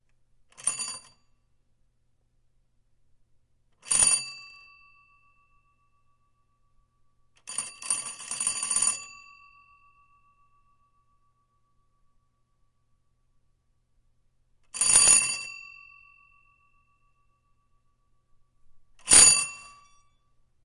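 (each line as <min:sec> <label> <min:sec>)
0:00.5 An old mechanical doorbell rings quietly with a distinct metallic chime. 0:01.1
0:03.9 An old mechanical doorbell rings with a distinct metallic chime. 0:04.4
0:07.4 An old mechanical doorbell rings with a distinct metallic chime. 0:09.1
0:14.7 An old mechanical doorbell rings with a distinct metallic chime. 0:15.5
0:19.0 An old mechanical doorbell rings with a distinct metallic chime. 0:19.7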